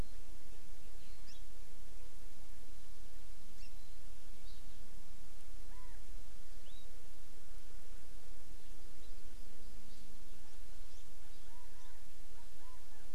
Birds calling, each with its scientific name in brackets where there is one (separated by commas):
Chinese Hwamei (Garrulax canorus), Hawaii Amakihi (Chlorodrepanis virens)